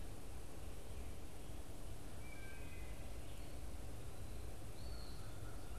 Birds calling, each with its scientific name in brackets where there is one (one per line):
Wood Thrush (Hylocichla mustelina)
American Crow (Corvus brachyrhynchos)
Eastern Wood-Pewee (Contopus virens)
Red-eyed Vireo (Vireo olivaceus)